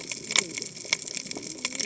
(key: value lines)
label: biophony, cascading saw
recorder: HydroMoth